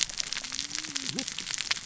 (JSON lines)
{"label": "biophony, cascading saw", "recorder": "SoundTrap 600 or HydroMoth"}